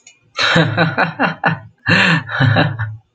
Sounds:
Laughter